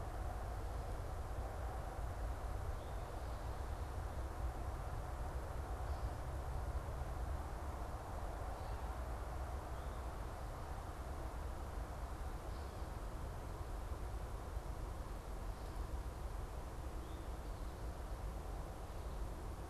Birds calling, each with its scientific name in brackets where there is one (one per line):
Eastern Towhee (Pipilo erythrophthalmus)